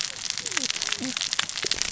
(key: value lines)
label: biophony, cascading saw
recorder: SoundTrap 600 or HydroMoth